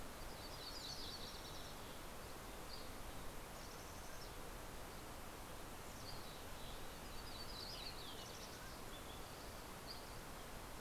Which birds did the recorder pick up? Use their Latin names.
Setophaga coronata, Empidonax oberholseri, Poecile gambeli, Oreortyx pictus